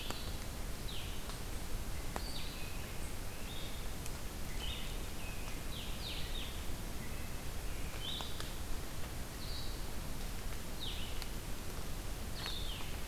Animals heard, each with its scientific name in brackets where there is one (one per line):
Blue-headed Vireo (Vireo solitarius)
American Robin (Turdus migratorius)